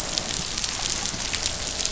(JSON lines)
{"label": "biophony", "recorder": "SoundTrap 500"}